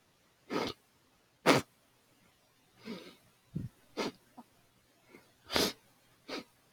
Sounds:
Sniff